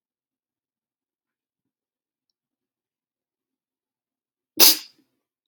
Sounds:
Sneeze